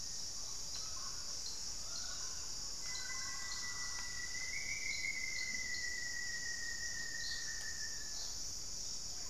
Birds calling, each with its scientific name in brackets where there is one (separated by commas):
Mealy Parrot (Amazona farinosa), Rufous-fronted Antthrush (Formicarius rufifrons)